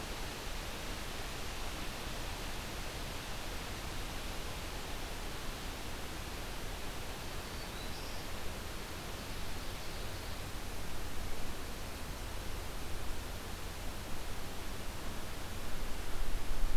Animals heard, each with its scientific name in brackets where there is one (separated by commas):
Ovenbird (Seiurus aurocapilla), Black-throated Green Warbler (Setophaga virens)